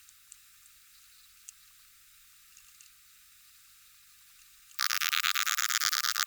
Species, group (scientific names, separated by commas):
Poecilimon ebneri, Orthoptera